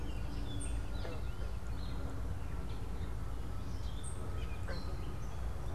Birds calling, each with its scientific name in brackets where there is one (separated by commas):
Gray Catbird (Dumetella carolinensis), unidentified bird